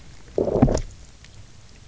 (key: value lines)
label: biophony, low growl
recorder: SoundTrap 300